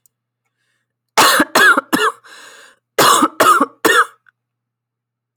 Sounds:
Cough